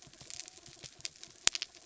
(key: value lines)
label: biophony
recorder: SoundTrap 300